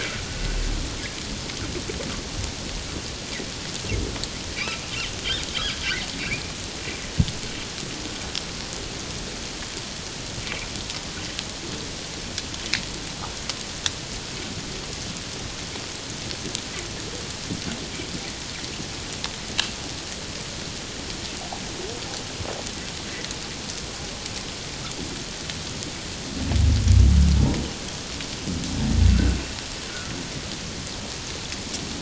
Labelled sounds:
6.1	6.4	humpback whale, 2.0 to 2.5 kHz
10.4	10.7	humpback whale, 2.1 to 2.5 kHz

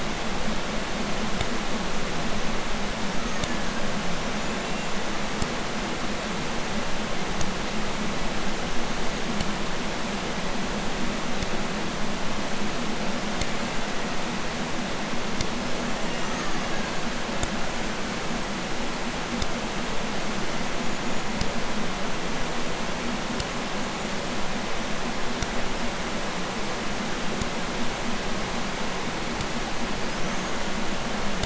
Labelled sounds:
3.0	5.0	killer whale, Bigg's (transient), 0.65 to 7.7 kHz
13.1	14.7	killer whale, Bigg's (transient), 1.1 to 7.8 kHz
15.5	17.5	killer whale, Bigg's (transient), 0.69 to 7.5 kHz
20.5	21.4	killer whale, Bigg's (transient), 6.1 to 7.0 kHz
29.8	31.0	killer whale, Bigg's (transient), 0.49 to 7.2 kHz

